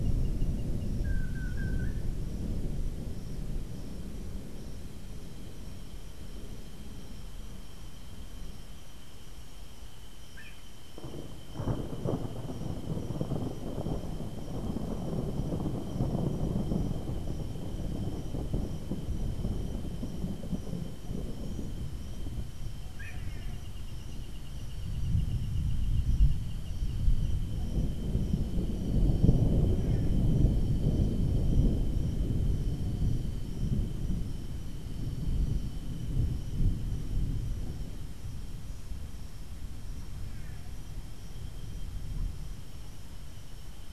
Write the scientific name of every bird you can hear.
Chiroxiphia linearis